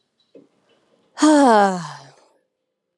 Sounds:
Sigh